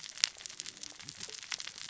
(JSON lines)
{"label": "biophony, cascading saw", "recorder": "SoundTrap 600 or HydroMoth"}